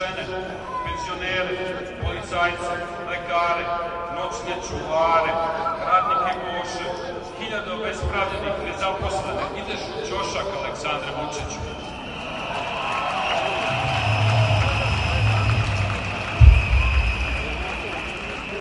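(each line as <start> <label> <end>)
0.0 Saša Janković is delivering a political rally speech with his voice echoing loudly and intermittently overlapping with crowd cheers. 11.9
11.9 A crowd cheers, whistles, and applauds loudly and energetically. 18.6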